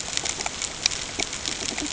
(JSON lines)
{"label": "ambient", "recorder": "HydroMoth"}